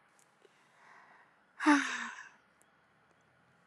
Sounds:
Sigh